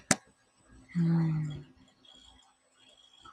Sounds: Sigh